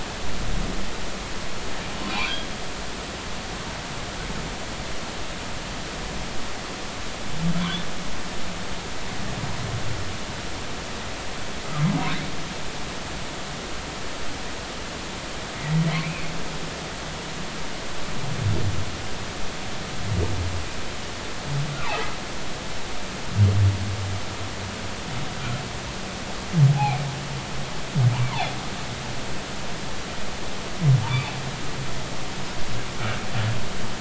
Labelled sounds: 2.1	2.5	humpback whale, 2.2 to 3.4 kHz
7.6	7.9	humpback whale, 3.3 to 3.6 kHz
15.9	16.3	humpback whale, 2.0 to 2.7 kHz
26.7	27.0	humpback whale, 0.80 to 0.93 kHz
31.1	31.3	humpback whale, 2.2 to 2.7 kHz

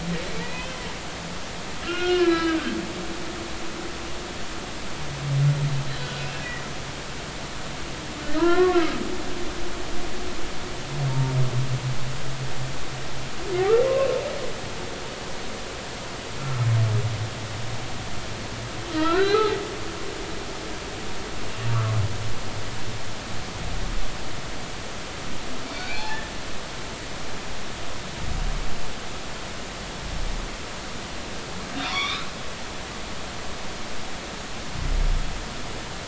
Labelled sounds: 0.4	0.8	humpback whale, 1.8 to 3.2 kHz
1.9	3.6	humpback whale, 1.2 to 3.6 kHz
5.9	6.2	humpback whale, 2.8 to 3.1 kHz
8.4	9.0	humpback whale, 0.93 to 1.9 kHz
11.1	11.3	humpback whale, 0.86 to 0.99 kHz
13.9	14.2	humpback whale, 1.0 to 1.1 kHz
16.4	16.7	humpback whale, 1.2 to 1.4 kHz
18.9	19.6	humpback whale, 0.80 to 4.2 kHz
25.7	26.3	humpback whale, 1.7 to 4.7 kHz
31.8	32.3	humpback whale, 0.93 to 6.0 kHz

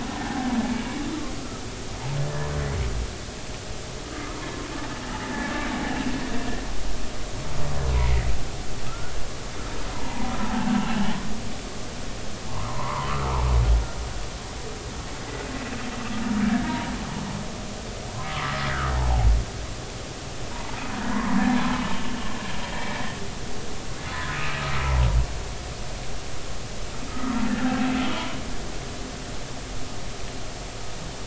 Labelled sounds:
0.2	1.3	humpback whale, 0.80 to 1.4 kHz
7.9	9.1	humpback whale, 1.2 to 2.3 kHz
9.9	10.7	humpback whale, 0.80 to 1.1 kHz
12.5	13.4	humpback whale, 0.83 to 1.5 kHz
16.6	16.9	humpback whale, 0.90 to 0.99 kHz
18.2	19.3	humpback whale, 0.80 to 1.3 kHz
20.5	20.8	humpback whale, 0.83 to 1.2 kHz
21.1	21.7	humpback whale, 0.90 to 1.8 kHz
24.1	24.6	humpback whale, 1.4 to 2.7 kHz
27.1	28.4	humpback whale, 0.86 to 1.5 kHz

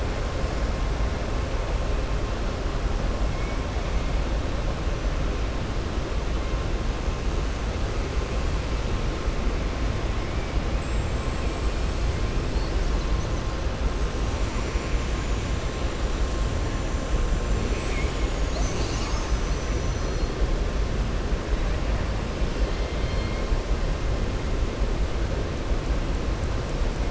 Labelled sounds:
10.7	11.7	killer whale, southern resident, 7.2 to 8.0 kHz
22.5	23.4	killer whale, southern resident, 2.1 to 5.1 kHz

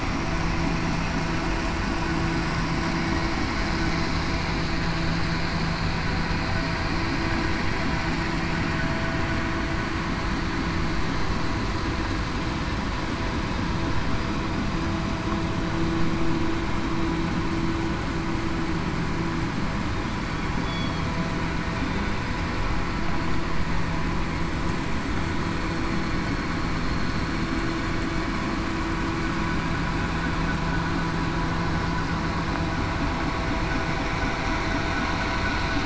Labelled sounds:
20.6	21.1	killer whale, southern resident, 3.2 to 3.4 kHz

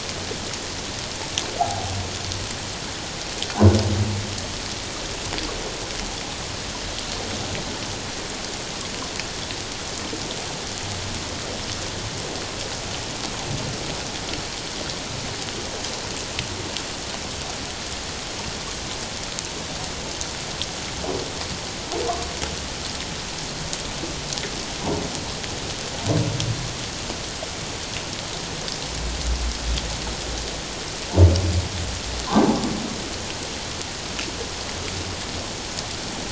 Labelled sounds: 1.6	1.8	humpback whale, 0.78 to 0.88 kHz

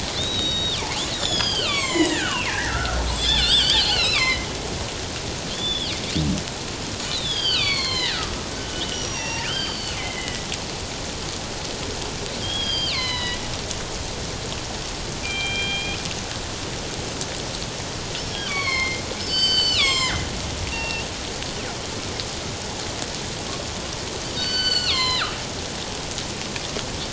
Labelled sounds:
0.1	4.5	killer whale, northern resident, G clan, 0.94 to 7.9 kHz
5.5	5.9	killer whale, northern resident, G clan, 2.8 to 3.6 kHz
7.1	10.5	killer whale, northern resident, G clan, 0.91 to 5.9 kHz
12.4	13.4	killer whale, northern resident, G clan, 0.94 to 5.2 kHz
15.2	16.0	killer whale, northern resident, G clan, 1.5 to 3.3 kHz
18.2	21.1	killer whale, northern resident, G clan, 0.81 to 7.8 kHz
24.4	25.4	killer whale, northern resident, G clan, 0.97 to 7.6 kHz

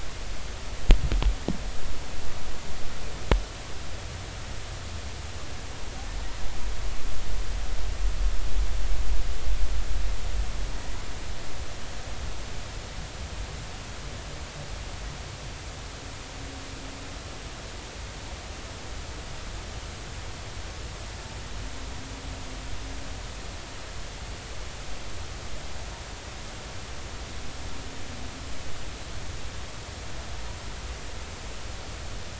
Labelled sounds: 10.7	11.0	humpback whale, 1.8 to 2.0 kHz

